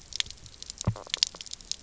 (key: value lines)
label: biophony
recorder: SoundTrap 300